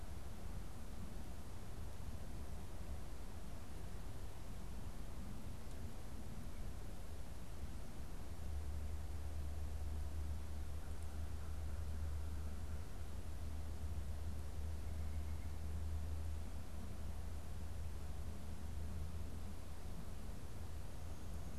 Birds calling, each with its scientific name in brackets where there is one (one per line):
White-breasted Nuthatch (Sitta carolinensis)
American Crow (Corvus brachyrhynchos)